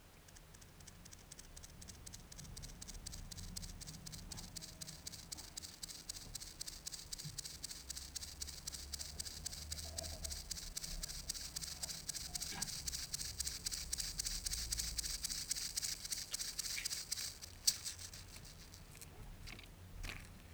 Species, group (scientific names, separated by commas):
Gomphocerippus rufus, Orthoptera